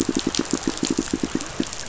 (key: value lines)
label: biophony, pulse
recorder: SoundTrap 500